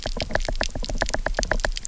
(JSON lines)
{"label": "biophony, knock", "recorder": "SoundTrap 300"}